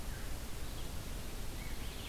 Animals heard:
forest ambience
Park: Marsh-Billings-Rockefeller National Historical Park